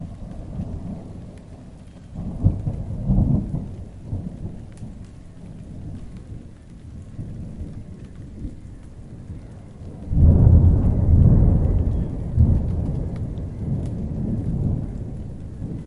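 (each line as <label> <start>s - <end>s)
Thunder rumbles deeply, resonating powerfully through the atmosphere. 0.0s - 15.9s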